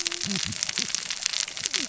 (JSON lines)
{"label": "biophony, cascading saw", "recorder": "SoundTrap 600 or HydroMoth"}